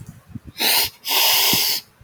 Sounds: Sniff